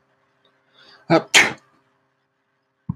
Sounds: Sneeze